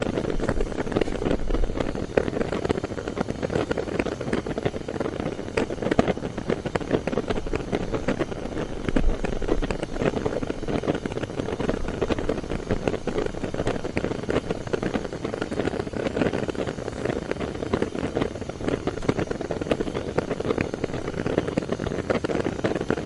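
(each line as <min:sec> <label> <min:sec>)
0:00.0 Constant cracking sound in a random, non-rhythmic pattern with a light sound of gas escaping in the background. 0:23.1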